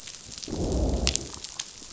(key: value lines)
label: biophony, growl
recorder: SoundTrap 500